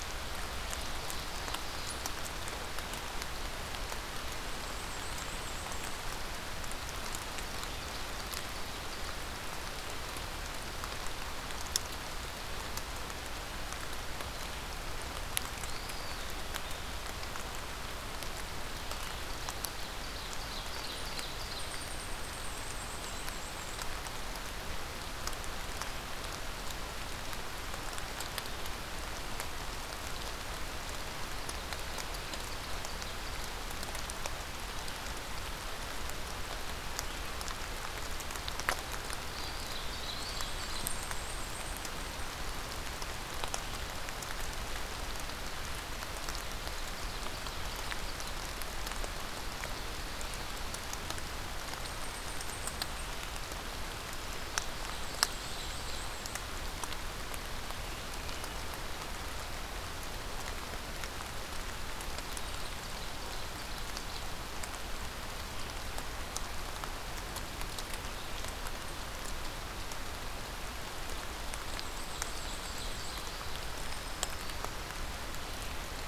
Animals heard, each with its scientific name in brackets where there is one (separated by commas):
Black-throated Green Warbler (Setophaga virens), unidentified call, Ovenbird (Seiurus aurocapilla), Black-and-white Warbler (Mniotilta varia), Eastern Wood-Pewee (Contopus virens)